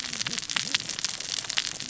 {"label": "biophony, cascading saw", "recorder": "SoundTrap 600 or HydroMoth"}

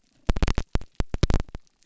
{"label": "biophony", "recorder": "SoundTrap 300"}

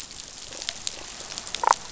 {"label": "biophony, damselfish", "recorder": "SoundTrap 500"}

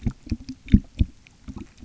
{"label": "geophony, waves", "recorder": "SoundTrap 300"}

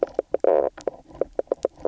{"label": "biophony, knock croak", "recorder": "SoundTrap 300"}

